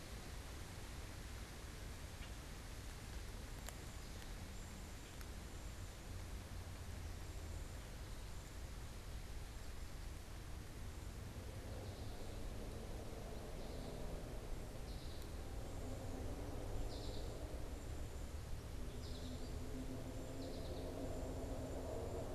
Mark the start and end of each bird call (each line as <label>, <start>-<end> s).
American Goldfinch (Spinus tristis), 13.3-21.0 s
Cedar Waxwing (Bombycilla cedrorum), 16.0-22.3 s